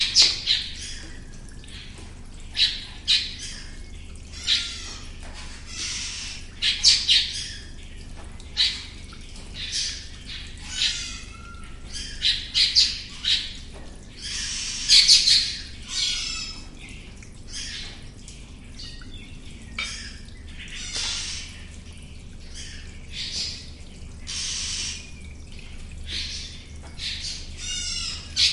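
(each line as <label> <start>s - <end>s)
A bird chirps nearby. 0.0s - 0.9s
A bird chirps. 2.5s - 5.1s
A bird chirps nearby. 6.6s - 7.7s
A bird chirps. 8.5s - 8.9s
Distant animal sounds. 9.4s - 11.3s
Birds chirping. 11.9s - 13.6s
A bird chirps nearby. 14.8s - 15.8s
Distant animal sounds. 15.9s - 18.2s
Birds are chirping in the distance. 19.7s - 21.9s
Birds are chirping in the distance. 22.5s - 25.3s
Distant animal sounds. 26.0s - 28.3s
A bird is chirping nearby. 28.3s - 28.5s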